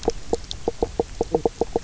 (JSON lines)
{"label": "biophony, knock croak", "recorder": "SoundTrap 300"}